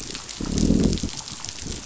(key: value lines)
label: biophony, growl
recorder: SoundTrap 500